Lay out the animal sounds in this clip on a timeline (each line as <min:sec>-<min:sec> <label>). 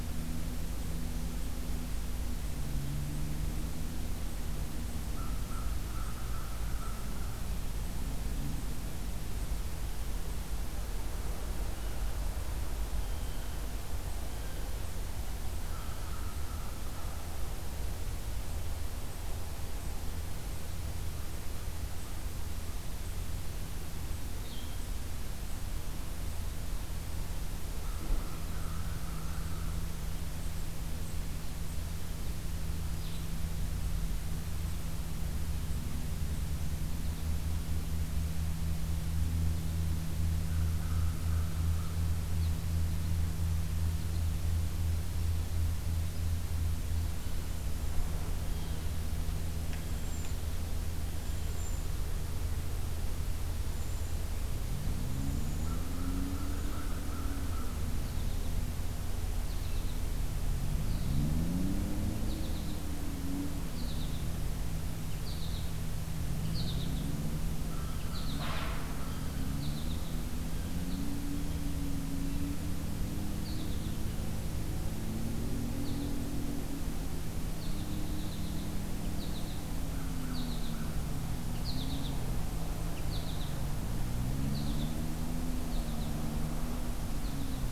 0:05.0-0:07.6 American Crow (Corvus brachyrhynchos)
0:15.4-0:18.3 American Crow (Corvus brachyrhynchos)
0:24.4-0:24.8 Blue-headed Vireo (Vireo solitarius)
0:27.6-0:30.0 American Crow (Corvus brachyrhynchos)
0:32.9-0:33.3 Blue-headed Vireo (Vireo solitarius)
0:40.3-0:42.2 American Crow (Corvus brachyrhynchos)
0:48.3-0:51.5 Blue Jay (Cyanocitta cristata)
0:49.1-0:55.9 Cedar Waxwing (Bombycilla cedrorum)
0:55.3-0:58.0 American Crow (Corvus brachyrhynchos)
0:59.4-1:00.1 American Goldfinch (Spinus tristis)
1:00.9-1:01.6 American Goldfinch (Spinus tristis)
1:02.2-1:02.9 American Goldfinch (Spinus tristis)
1:03.7-1:04.3 American Goldfinch (Spinus tristis)
1:05.2-1:05.6 American Goldfinch (Spinus tristis)
1:06.5-1:07.2 American Goldfinch (Spinus tristis)
1:07.4-1:09.6 American Crow (Corvus brachyrhynchos)
1:08.0-1:08.7 American Goldfinch (Spinus tristis)
1:09.5-1:11.7 American Goldfinch (Spinus tristis)
1:13.4-1:14.0 American Goldfinch (Spinus tristis)
1:15.7-1:16.1 American Goldfinch (Spinus tristis)
1:17.6-1:18.8 American Goldfinch (Spinus tristis)
1:19.1-1:19.6 American Goldfinch (Spinus tristis)
1:20.2-1:20.7 American Goldfinch (Spinus tristis)
1:21.5-1:22.1 American Goldfinch (Spinus tristis)
1:23.0-1:23.6 American Goldfinch (Spinus tristis)
1:24.4-1:25.1 American Goldfinch (Spinus tristis)
1:25.6-1:26.4 American Goldfinch (Spinus tristis)
1:27.1-1:27.7 American Goldfinch (Spinus tristis)